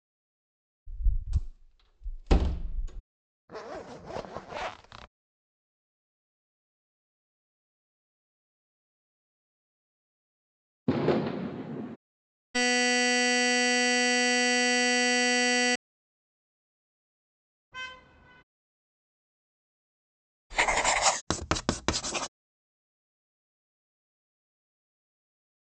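First, at 0.86 seconds, a metal door closes. Then, at 3.48 seconds, the sound of a zipper is heard. Later, at 10.86 seconds, fireworks can be heard. Next, at 12.54 seconds, you can hear an alarm. At 17.71 seconds, a quiet vehicle horn can be heard. Afterwards, at 20.5 seconds, there is writing. Then, at 21.27 seconds, you can hear writing.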